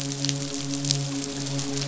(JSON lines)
{"label": "biophony, midshipman", "recorder": "SoundTrap 500"}